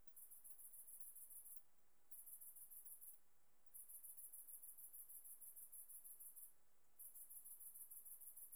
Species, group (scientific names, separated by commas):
Tettigonia viridissima, Orthoptera